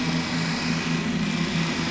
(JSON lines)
{"label": "anthrophony, boat engine", "recorder": "SoundTrap 500"}